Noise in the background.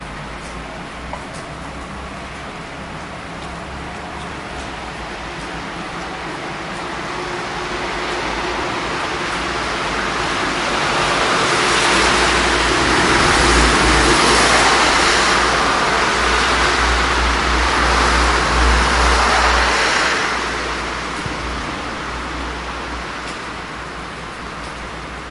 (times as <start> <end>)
0.0 5.5, 21.6 25.3